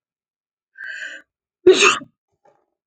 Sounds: Sneeze